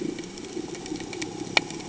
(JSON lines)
{"label": "anthrophony, boat engine", "recorder": "HydroMoth"}